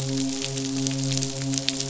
{"label": "biophony, midshipman", "recorder": "SoundTrap 500"}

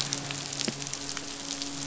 {"label": "biophony, midshipman", "recorder": "SoundTrap 500"}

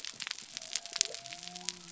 {"label": "biophony", "recorder": "SoundTrap 300"}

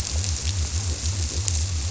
{"label": "biophony", "recorder": "SoundTrap 300"}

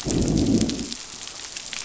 {"label": "biophony, growl", "recorder": "SoundTrap 500"}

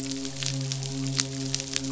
{"label": "biophony, midshipman", "recorder": "SoundTrap 500"}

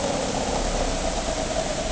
{"label": "anthrophony, boat engine", "recorder": "HydroMoth"}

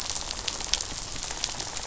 {"label": "biophony, rattle", "recorder": "SoundTrap 500"}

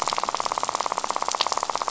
{"label": "biophony, rattle", "recorder": "SoundTrap 500"}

